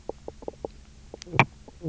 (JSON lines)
{"label": "biophony, knock croak", "recorder": "SoundTrap 300"}